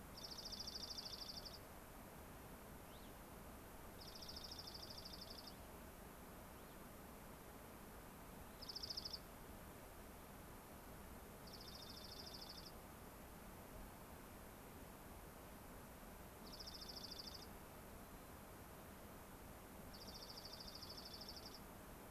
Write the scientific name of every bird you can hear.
Junco hyemalis, Haemorhous cassinii